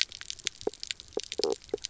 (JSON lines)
{"label": "biophony, knock croak", "recorder": "SoundTrap 300"}